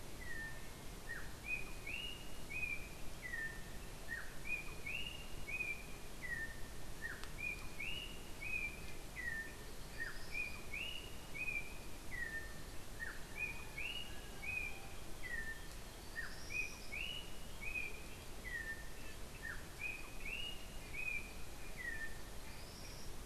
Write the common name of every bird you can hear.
Yellow-backed Oriole, Tropical Kingbird